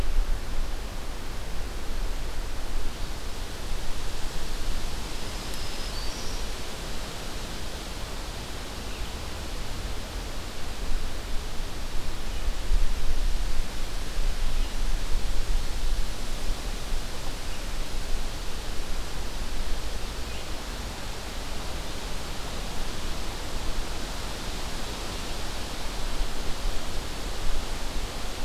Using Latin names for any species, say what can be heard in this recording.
Setophaga virens